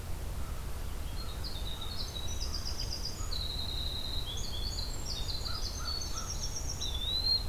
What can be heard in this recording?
American Crow, Winter Wren, Eastern Wood-Pewee